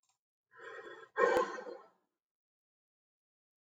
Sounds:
Sigh